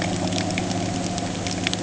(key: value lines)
label: anthrophony, boat engine
recorder: HydroMoth